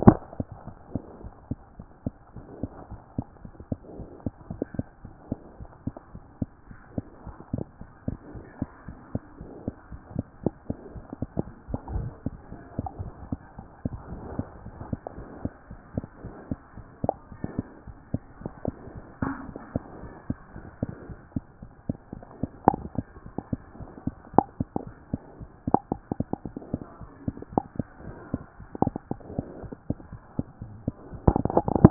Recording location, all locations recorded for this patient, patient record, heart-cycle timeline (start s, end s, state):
mitral valve (MV)
aortic valve (AV)+mitral valve (MV)
#Age: Infant
#Sex: Male
#Height: 65.0 cm
#Weight: 8.0 kg
#Pregnancy status: False
#Murmur: Absent
#Murmur locations: nan
#Most audible location: nan
#Systolic murmur timing: nan
#Systolic murmur shape: nan
#Systolic murmur grading: nan
#Systolic murmur pitch: nan
#Systolic murmur quality: nan
#Diastolic murmur timing: nan
#Diastolic murmur shape: nan
#Diastolic murmur grading: nan
#Diastolic murmur pitch: nan
#Diastolic murmur quality: nan
#Outcome: Normal
#Campaign: 2014 screening campaign
0.00	7.55	unannotated
7.55	7.63	unannotated
7.63	7.67	S2
7.67	7.90	diastole
7.90	7.96	S1
7.96	8.07	systole
8.07	8.12	S2
8.12	8.34	diastole
8.34	8.41	S1
8.41	8.61	systole
8.61	8.65	S2
8.65	8.87	diastole
8.87	8.94	S1
8.94	9.14	systole
9.14	9.18	S2
9.18	9.40	diastole
9.40	9.47	S1
9.47	9.67	systole
9.67	9.71	S2
9.71	9.92	diastole
9.92	9.98	S1
9.98	10.15	unannotated
10.15	31.90	unannotated